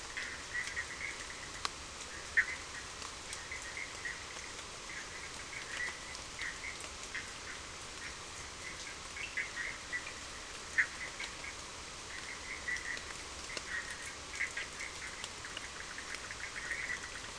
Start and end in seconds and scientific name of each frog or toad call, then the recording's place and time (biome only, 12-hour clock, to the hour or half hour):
0.0	17.3	Boana bischoffi
9.2	9.4	Sphaenorhynchus surdus
Atlantic Forest, 9:30pm